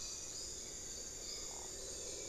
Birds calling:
Buckley's Forest-Falcon (Micrastur buckleyi), Hauxwell's Thrush (Turdus hauxwelli)

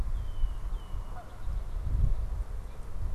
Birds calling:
Red-winged Blackbird (Agelaius phoeniceus), Canada Goose (Branta canadensis)

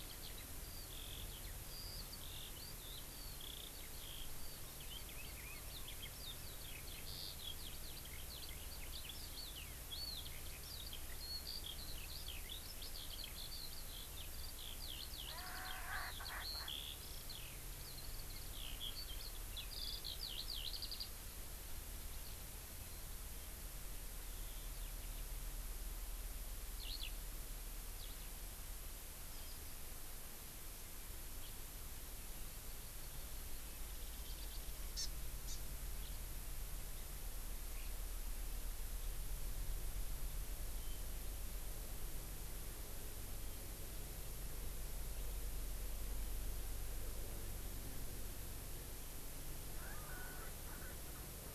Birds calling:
Hawaii Amakihi (Chlorodrepanis virens), Erckel's Francolin (Pternistis erckelii), Eurasian Skylark (Alauda arvensis)

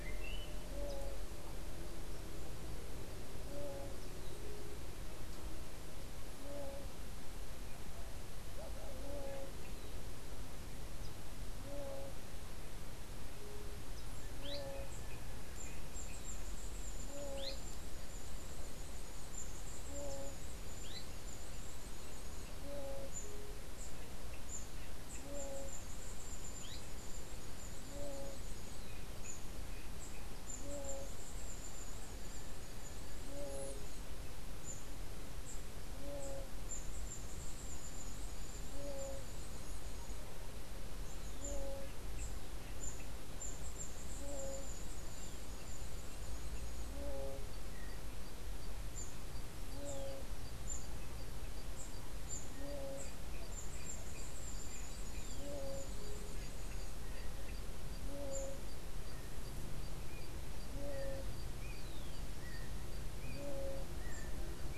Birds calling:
Scrub Tanager (Stilpnia vitriolina), Azara's Spinetail (Synallaxis azarae), unidentified bird, Yellow-backed Oriole (Icterus chrysater)

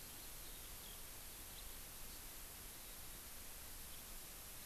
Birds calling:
Eurasian Skylark (Alauda arvensis)

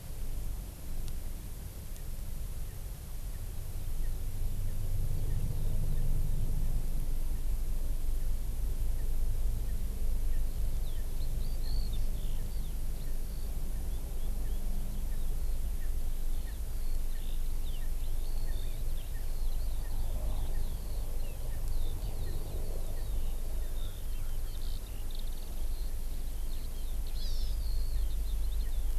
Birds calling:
Eurasian Skylark (Alauda arvensis), Hawaii Amakihi (Chlorodrepanis virens), Erckel's Francolin (Pternistis erckelii)

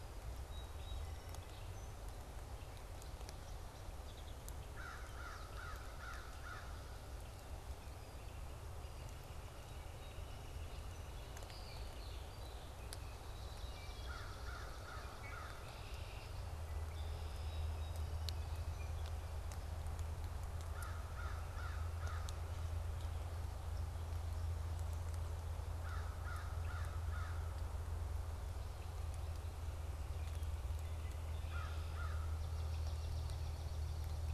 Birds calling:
Red-winged Blackbird (Agelaius phoeniceus), Wood Thrush (Hylocichla mustelina), Gray Catbird (Dumetella carolinensis), Northern Flicker (Colaptes auratus), American Crow (Corvus brachyrhynchos), Swamp Sparrow (Melospiza georgiana), Song Sparrow (Melospiza melodia)

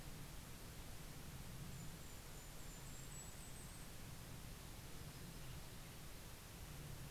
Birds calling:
Western Tanager (Piranga ludoviciana), Golden-crowned Kinglet (Regulus satrapa)

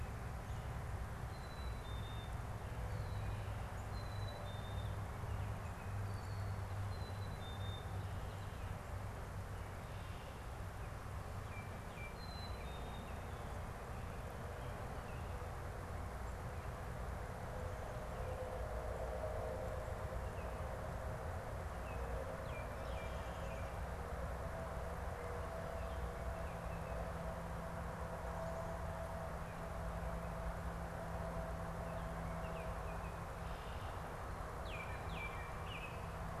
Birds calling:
Baltimore Oriole (Icterus galbula), Black-capped Chickadee (Poecile atricapillus)

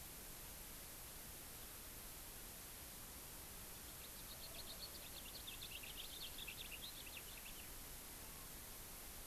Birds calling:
House Finch (Haemorhous mexicanus)

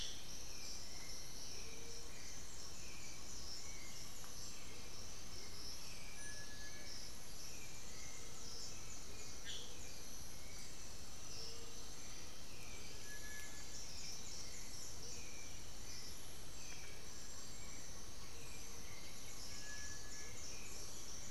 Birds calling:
Cinereous Tinamou (Crypturellus cinereus), Black-billed Thrush (Turdus ignobilis), Amazonian Motmot (Momotus momota), Great Antshrike (Taraba major), White-winged Becard (Pachyramphus polychopterus), Plumbeous Pigeon (Patagioenas plumbea), Black-throated Antbird (Myrmophylax atrothorax)

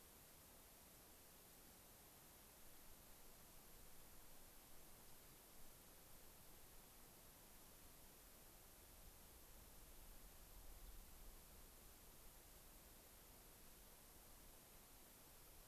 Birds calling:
Rock Wren (Salpinctes obsoletus), unidentified bird

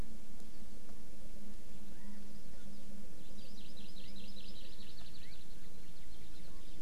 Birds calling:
Hawaii Amakihi (Chlorodrepanis virens), Chinese Hwamei (Garrulax canorus)

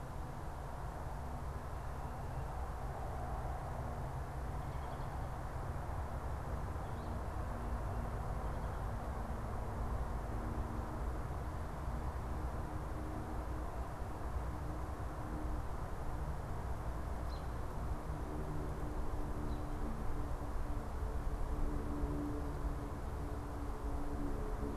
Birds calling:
American Robin (Turdus migratorius)

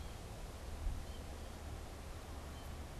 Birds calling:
American Goldfinch (Spinus tristis)

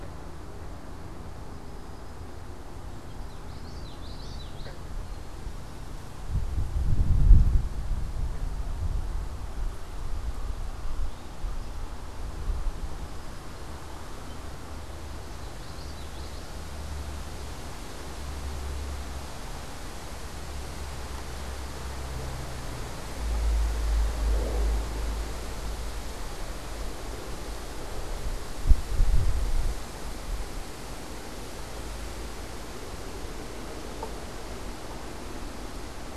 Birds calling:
Song Sparrow (Melospiza melodia), Eastern Towhee (Pipilo erythrophthalmus), unidentified bird, Common Yellowthroat (Geothlypis trichas)

